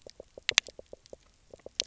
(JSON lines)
{"label": "biophony, knock croak", "recorder": "SoundTrap 300"}